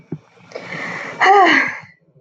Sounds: Sigh